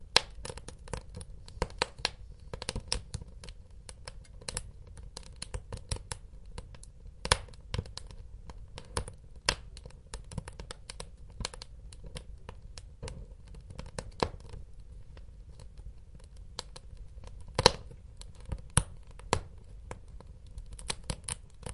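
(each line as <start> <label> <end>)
0.0 Fire crackling. 21.7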